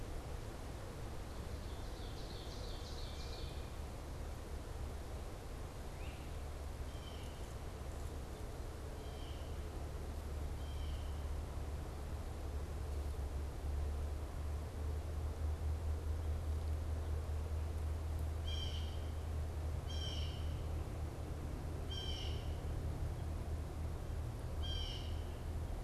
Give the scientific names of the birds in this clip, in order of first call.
Seiurus aurocapilla, Myiarchus crinitus, Cyanocitta cristata